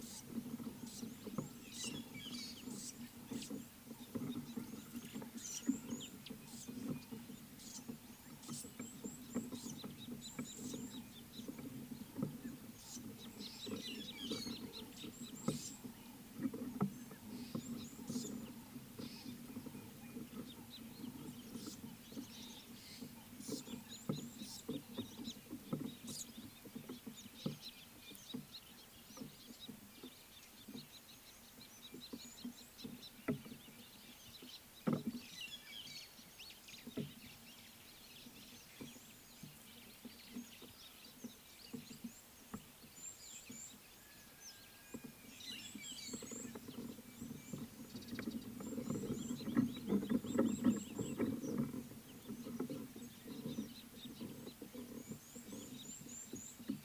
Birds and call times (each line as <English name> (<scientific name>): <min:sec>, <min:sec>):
White-headed Buffalo-Weaver (Dinemellia dinemelli): 0:02.2, 0:35.6, 0:45.6
Scarlet-chested Sunbird (Chalcomitra senegalensis): 0:10.1, 0:14.6, 0:31.7
Red-cheeked Cordonbleu (Uraeginthus bengalus): 0:43.4, 0:49.1